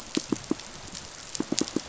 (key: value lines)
label: biophony, pulse
recorder: SoundTrap 500